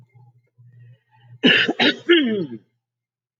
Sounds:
Throat clearing